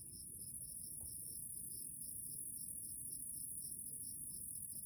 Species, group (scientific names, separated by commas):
Eumodicogryllus bordigalensis, Orthoptera